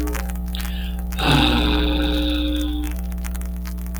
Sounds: Sigh